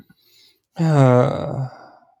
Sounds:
Sigh